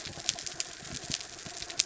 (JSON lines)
{"label": "anthrophony, boat engine", "recorder": "SoundTrap 300"}